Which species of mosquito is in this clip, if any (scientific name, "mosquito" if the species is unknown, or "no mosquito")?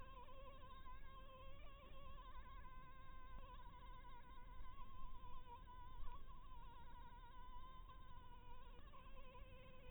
Anopheles harrisoni